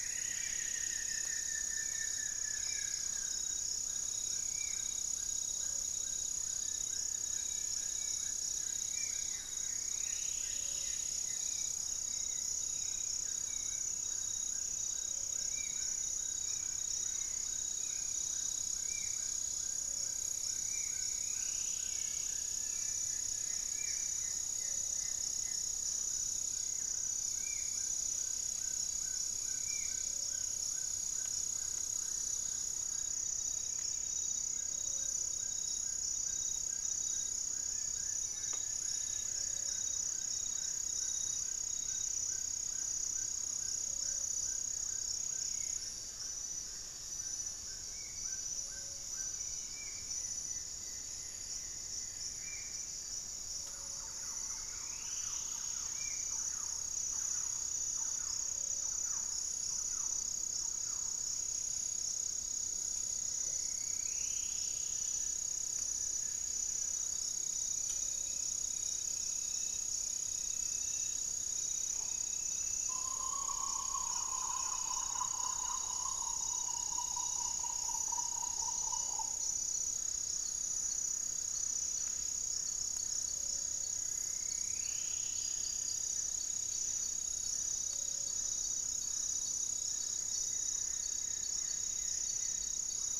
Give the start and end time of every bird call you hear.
[0.00, 1.60] Striped Woodcreeper (Xiphorhynchus obsoletus)
[0.00, 3.20] Hauxwell's Thrush (Turdus hauxwelli)
[0.00, 3.80] Buff-throated Woodcreeper (Xiphorhynchus guttatus)
[0.00, 49.60] Amazonian Trogon (Trogon ramonianus)
[0.00, 59.00] Gray-fronted Dove (Leptotila rufaxilla)
[0.20, 30.30] Spot-winged Antshrike (Pygiptila stellaris)
[0.70, 1.70] Black-spotted Bare-eye (Phlegopsis nigromaculata)
[6.40, 8.90] Plain-winged Antshrike (Thamnophilus schistaceus)
[8.60, 11.60] Striped Woodcreeper (Xiphorhynchus obsoletus)
[8.80, 11.70] Goeldi's Antbird (Akletos goeldii)
[10.80, 23.50] Hauxwell's Thrush (Turdus hauxwelli)
[13.40, 16.10] Buff-breasted Wren (Cantorchilus leucotis)
[15.00, 15.50] White-bellied Tody-Tyrant (Hemitriccus griseipectus)
[20.00, 23.00] Striped Woodcreeper (Xiphorhynchus obsoletus)
[21.80, 24.50] Plain-winged Antshrike (Thamnophilus schistaceus)
[22.90, 25.90] Goeldi's Antbird (Akletos goeldii)
[27.80, 29.00] Buff-breasted Wren (Cantorchilus leucotis)
[30.00, 30.80] Long-winged Antwren (Myrmotherula longipennis)
[31.90, 34.60] Black-faced Antthrush (Formicarius analis)
[33.20, 33.80] unidentified bird
[37.60, 40.00] Plain-winged Antshrike (Thamnophilus schistaceus)
[43.70, 50.00] Mealy Parrot (Amazona farinosa)
[45.00, 46.10] Buff-breasted Wren (Cantorchilus leucotis)
[45.30, 56.50] Spot-winged Antshrike (Pygiptila stellaris)
[45.50, 48.10] Black-faced Antthrush (Formicarius analis)
[49.30, 50.10] Black-spotted Bare-eye (Phlegopsis nigromaculata)
[49.90, 52.90] Goeldi's Antbird (Akletos goeldii)
[53.40, 61.60] Thrush-like Wren (Campylorhynchus turdinus)
[53.50, 56.50] Striped Woodcreeper (Xiphorhynchus obsoletus)
[56.40, 67.10] Buff-breasted Wren (Cantorchilus leucotis)
[61.70, 64.50] Amazonian Trogon (Trogon ramonianus)
[62.60, 65.60] Striped Woodcreeper (Xiphorhynchus obsoletus)
[64.50, 67.20] Plain-winged Antshrike (Thamnophilus schistaceus)
[67.80, 68.60] Gray-fronted Dove (Leptotila rufaxilla)
[69.40, 71.90] Black-faced Antthrush (Formicarius analis)
[71.80, 80.00] Green Ibis (Mesembrinibis cayennensis)
[83.10, 88.50] Gray-fronted Dove (Leptotila rufaxilla)
[83.60, 86.60] Striped Woodcreeper (Xiphorhynchus obsoletus)
[90.40, 93.00] Goeldi's Antbird (Akletos goeldii)

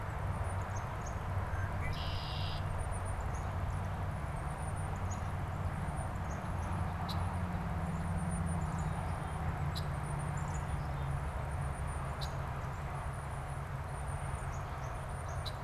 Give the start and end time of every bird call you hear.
[0.00, 15.64] Black-capped Chickadee (Poecile atricapillus)
[0.00, 15.64] Tufted Titmouse (Baeolophus bicolor)
[1.47, 2.77] Red-winged Blackbird (Agelaius phoeniceus)
[6.97, 7.27] Red-winged Blackbird (Agelaius phoeniceus)
[9.67, 9.97] Red-winged Blackbird (Agelaius phoeniceus)
[12.07, 12.37] Red-winged Blackbird (Agelaius phoeniceus)
[15.37, 15.57] Red-winged Blackbird (Agelaius phoeniceus)

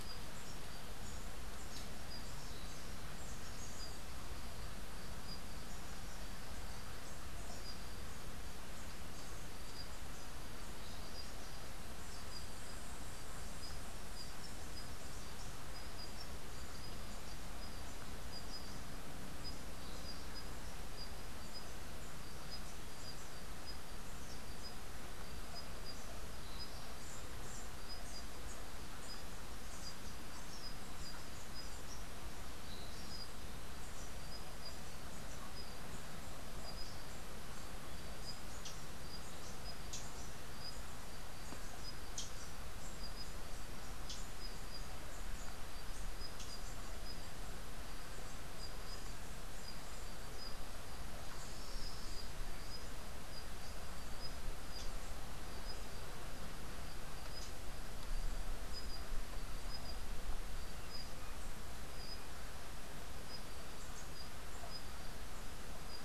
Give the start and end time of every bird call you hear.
[38.27, 44.47] Rufous-tailed Hummingbird (Amazilia tzacatl)

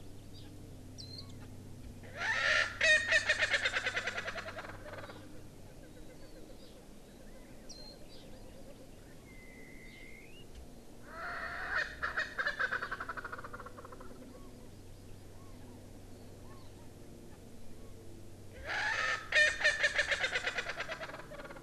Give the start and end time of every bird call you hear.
[1.00, 1.30] Warbling White-eye (Zosterops japonicus)
[1.10, 1.50] Chinese Hwamei (Garrulax canorus)
[2.00, 5.40] Erckel's Francolin (Pternistis erckelii)
[7.70, 8.00] Warbling White-eye (Zosterops japonicus)
[9.20, 10.50] Chinese Hwamei (Garrulax canorus)
[11.00, 14.30] Erckel's Francolin (Pternistis erckelii)
[14.30, 14.70] Chinese Hwamei (Garrulax canorus)
[14.30, 15.30] Hawaii Amakihi (Chlorodrepanis virens)
[15.30, 15.80] Chinese Hwamei (Garrulax canorus)
[16.40, 16.90] Chinese Hwamei (Garrulax canorus)
[18.50, 21.60] Erckel's Francolin (Pternistis erckelii)

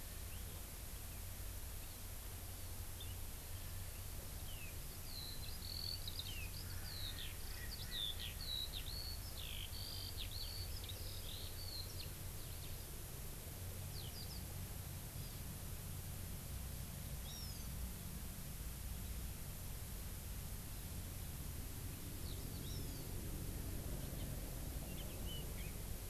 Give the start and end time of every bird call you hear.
[5.02, 12.92] Eurasian Skylark (Alauda arvensis)
[13.92, 14.42] Eurasian Skylark (Alauda arvensis)
[17.22, 17.72] Hawaii Amakihi (Chlorodrepanis virens)
[22.62, 23.02] Hawaii Amakihi (Chlorodrepanis virens)

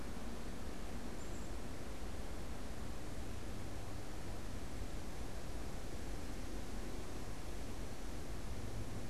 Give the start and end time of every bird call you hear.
[1.01, 1.61] Black-capped Chickadee (Poecile atricapillus)

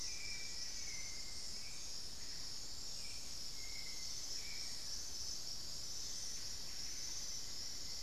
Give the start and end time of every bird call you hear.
[0.00, 1.49] Black-faced Antthrush (Formicarius analis)
[0.00, 5.09] Hauxwell's Thrush (Turdus hauxwelli)
[0.00, 8.03] unidentified bird
[6.39, 7.29] Buff-breasted Wren (Cantorchilus leucotis)

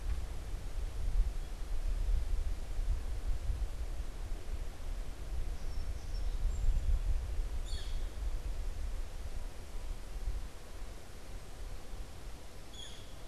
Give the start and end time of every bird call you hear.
[5.04, 7.44] Song Sparrow (Melospiza melodia)
[7.54, 8.14] Northern Flicker (Colaptes auratus)
[12.54, 13.24] Northern Flicker (Colaptes auratus)

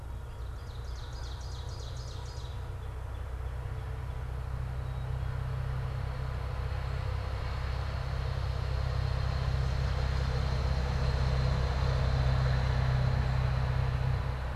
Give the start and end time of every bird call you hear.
[0.00, 2.70] Ovenbird (Seiurus aurocapilla)
[2.60, 4.40] Northern Cardinal (Cardinalis cardinalis)
[4.70, 5.50] Black-capped Chickadee (Poecile atricapillus)

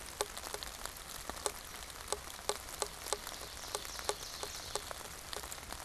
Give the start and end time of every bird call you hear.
[2.55, 5.15] Ovenbird (Seiurus aurocapilla)

